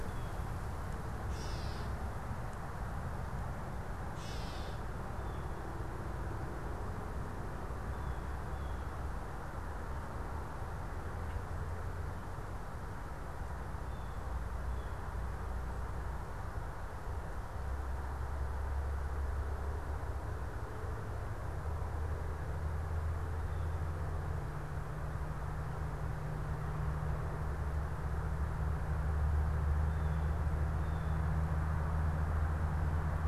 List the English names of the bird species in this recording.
Gray Catbird, Blue Jay